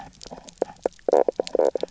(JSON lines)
{"label": "biophony, knock croak", "recorder": "SoundTrap 300"}